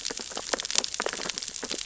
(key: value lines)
label: biophony, sea urchins (Echinidae)
recorder: SoundTrap 600 or HydroMoth